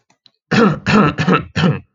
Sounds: Cough